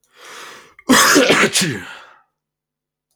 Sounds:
Sneeze